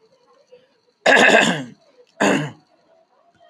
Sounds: Throat clearing